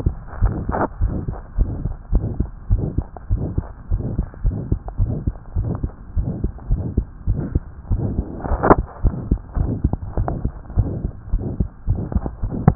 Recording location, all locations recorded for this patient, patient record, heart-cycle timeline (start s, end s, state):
tricuspid valve (TV)
aortic valve (AV)+pulmonary valve (PV)+tricuspid valve (TV)+mitral valve (MV)
#Age: Child
#Sex: Male
#Height: 111.0 cm
#Weight: 18.3 kg
#Pregnancy status: False
#Murmur: Present
#Murmur locations: aortic valve (AV)+mitral valve (MV)+pulmonary valve (PV)+tricuspid valve (TV)
#Most audible location: tricuspid valve (TV)
#Systolic murmur timing: Mid-systolic
#Systolic murmur shape: Diamond
#Systolic murmur grading: III/VI or higher
#Systolic murmur pitch: Medium
#Systolic murmur quality: Harsh
#Diastolic murmur timing: nan
#Diastolic murmur shape: nan
#Diastolic murmur grading: nan
#Diastolic murmur pitch: nan
#Diastolic murmur quality: nan
#Outcome: Abnormal
#Campaign: 2015 screening campaign
0.00	1.54	unannotated
1.54	1.72	S1
1.72	1.82	systole
1.82	1.96	S2
1.96	2.09	diastole
2.09	2.26	S1
2.26	2.38	systole
2.38	2.48	S2
2.48	2.68	diastole
2.68	2.84	S1
2.84	2.94	systole
2.94	3.06	S2
3.06	3.26	diastole
3.26	3.42	S1
3.42	3.53	systole
3.53	3.66	S2
3.66	3.86	diastole
3.86	4.00	S1
4.00	4.16	systole
4.16	4.26	S2
4.26	4.41	diastole
4.41	4.53	S1
4.53	4.68	systole
4.68	4.78	S2
4.78	4.96	diastole
4.96	5.09	S1
5.09	5.23	systole
5.23	5.34	S2
5.34	5.53	diastole
5.53	5.65	S1
5.65	5.79	systole
5.79	5.90	S2
5.90	6.14	diastole
6.14	6.28	S1
6.28	6.42	systole
6.42	6.52	S2
6.52	6.67	diastole
6.67	6.80	S1
6.80	6.93	systole
6.93	7.06	S2
7.06	7.24	diastole
7.24	7.37	S1
7.37	7.51	systole
7.51	7.64	S2
7.64	7.88	diastole
7.88	8.02	S1
8.02	8.16	systole
8.16	8.26	S2
8.26	8.48	diastole
8.48	8.62	S1
8.62	12.75	unannotated